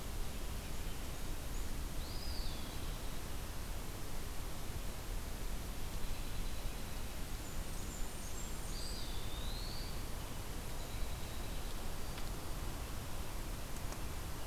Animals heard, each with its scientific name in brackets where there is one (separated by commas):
Dark-eyed Junco (Junco hyemalis), Blackburnian Warbler (Setophaga fusca), Eastern Wood-Pewee (Contopus virens)